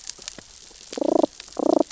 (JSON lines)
{"label": "biophony, damselfish", "recorder": "SoundTrap 600 or HydroMoth"}